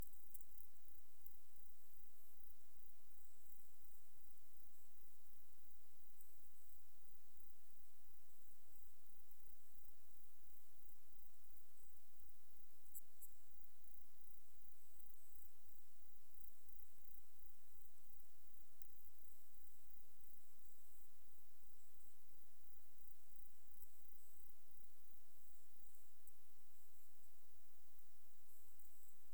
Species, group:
Platycleis sabulosa
Orthoptera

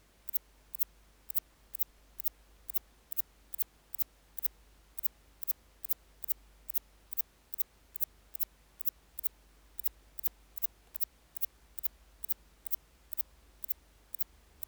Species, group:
Antaxius spinibrachius
Orthoptera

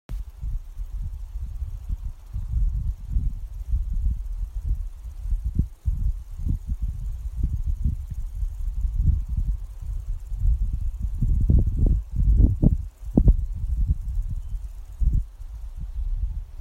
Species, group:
Omocestus viridulus
Orthoptera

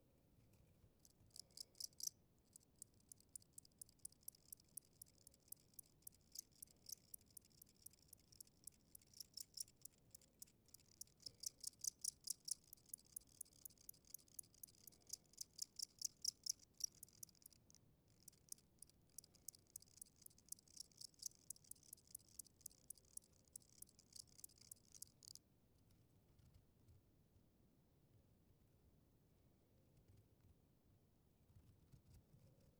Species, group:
Gryllus bimaculatus
Orthoptera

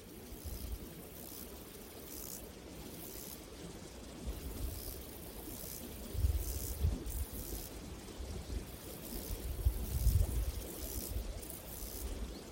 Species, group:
Chorthippus albomarginatus
Orthoptera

